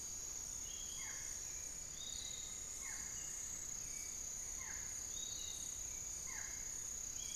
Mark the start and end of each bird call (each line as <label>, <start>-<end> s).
Barred Forest-Falcon (Micrastur ruficollis), 0.0-7.3 s
Piratic Flycatcher (Legatus leucophaius), 0.0-7.3 s
Amazonian Pygmy-Owl (Glaucidium hardyi), 1.9-5.0 s
unidentified bird, 3.2-5.5 s